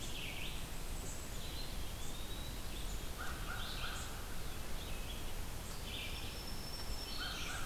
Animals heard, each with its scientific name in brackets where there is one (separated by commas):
Red-eyed Vireo (Vireo olivaceus), Black-throated Green Warbler (Setophaga virens), Eastern Wood-Pewee (Contopus virens), American Crow (Corvus brachyrhynchos), unknown mammal